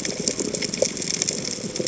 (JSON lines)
{"label": "biophony", "recorder": "HydroMoth"}